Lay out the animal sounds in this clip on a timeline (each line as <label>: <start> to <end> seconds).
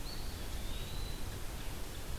Eastern Wood-Pewee (Contopus virens): 0.0 to 1.5 seconds
Red-eyed Vireo (Vireo olivaceus): 0.0 to 2.2 seconds